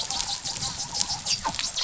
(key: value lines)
label: biophony, dolphin
recorder: SoundTrap 500